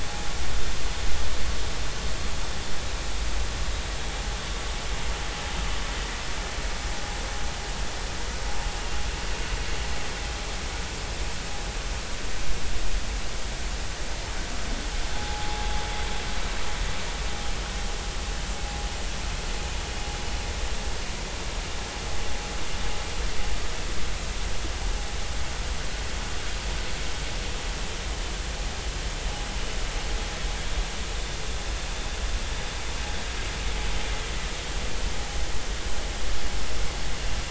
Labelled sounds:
15.2	15.7	vessel noise, 0.80 to 0.90 kHz

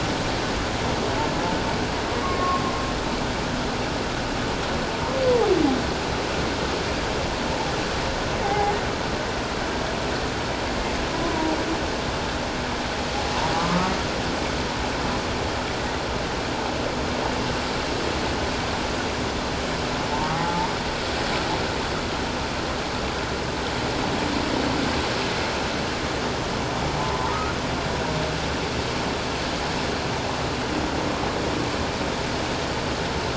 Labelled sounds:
2.2	2.6	humpback whale, 1.0 to 1.2 kHz
8.4	8.8	humpback whale, 0.78 to 2.2 kHz
11.2	11.6	humpback whale, 0.78 to 1.1 kHz
13.6	13.9	humpback whale, 1.1 to 1.3 kHz
20.1	20.7	humpback whale, 0.78 to 1.2 kHz
27.0	27.4	humpback whale, 0.84 to 1.1 kHz

